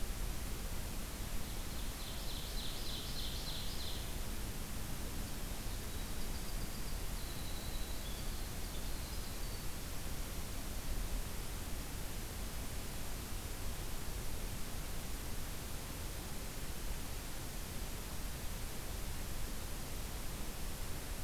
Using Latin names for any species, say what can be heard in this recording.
Seiurus aurocapilla, Troglodytes hiemalis